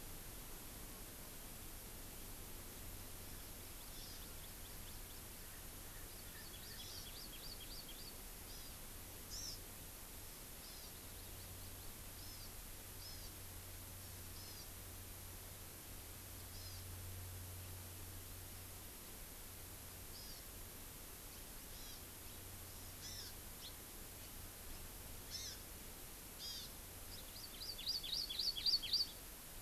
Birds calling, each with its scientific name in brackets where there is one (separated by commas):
Hawaii Amakihi (Chlorodrepanis virens), Erckel's Francolin (Pternistis erckelii)